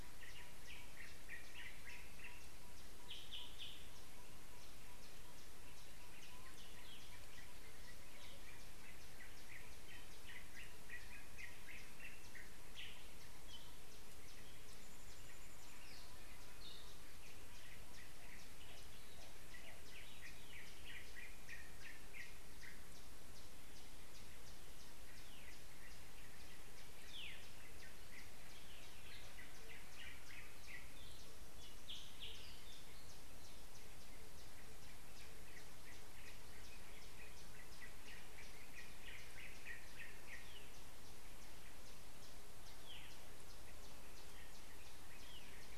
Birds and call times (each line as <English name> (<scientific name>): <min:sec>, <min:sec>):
Yellow-rumped Tinkerbird (Pogoniulus bilineatus): 0:02.7
Yellow-whiskered Greenbul (Eurillas latirostris): 0:03.4, 0:11.4, 0:21.4, 0:31.9
Hartlaub's Turaco (Tauraco hartlaubi): 0:19.2
Waller's Starling (Onychognathus walleri): 0:27.2